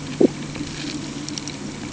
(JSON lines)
{"label": "anthrophony, boat engine", "recorder": "HydroMoth"}